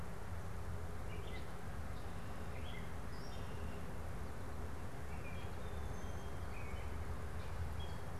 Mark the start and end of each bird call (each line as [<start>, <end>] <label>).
[0.79, 8.19] Gray Catbird (Dumetella carolinensis)